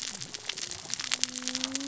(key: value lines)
label: biophony, cascading saw
recorder: SoundTrap 600 or HydroMoth